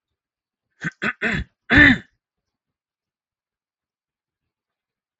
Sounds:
Cough